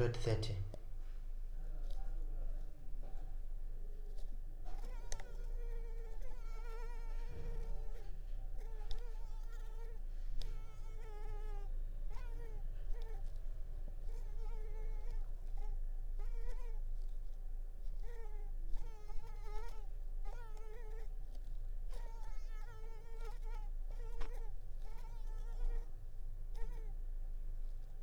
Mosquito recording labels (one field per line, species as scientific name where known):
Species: Culex pipiens complex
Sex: female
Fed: unfed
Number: one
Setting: cup